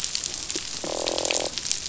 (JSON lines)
{"label": "biophony, croak", "recorder": "SoundTrap 500"}